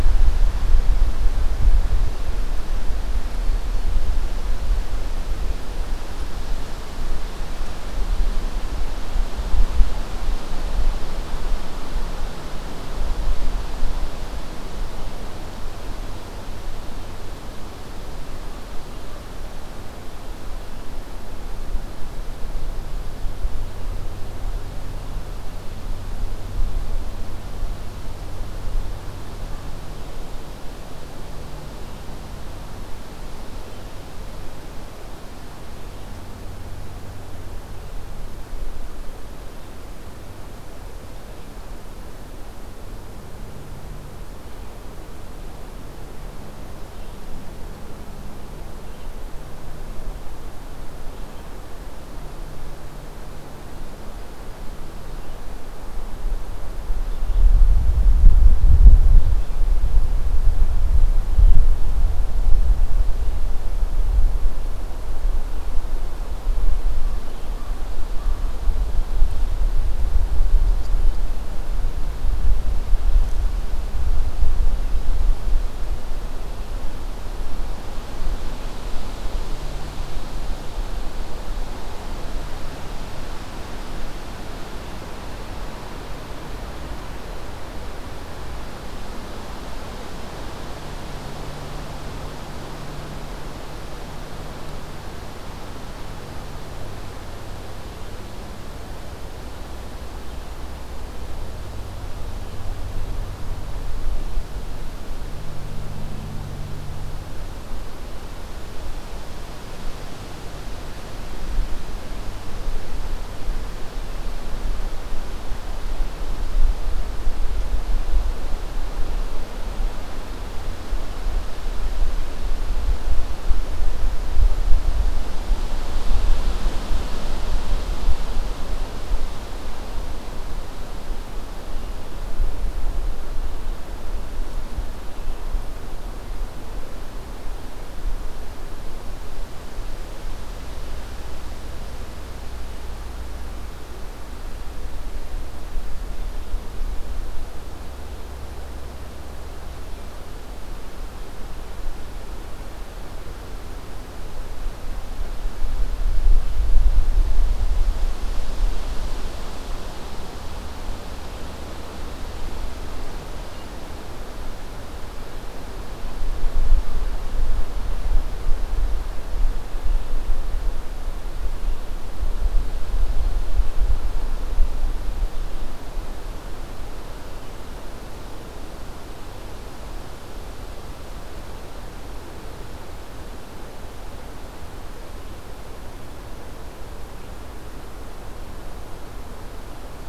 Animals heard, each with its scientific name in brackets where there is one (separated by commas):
Red-eyed Vireo (Vireo olivaceus)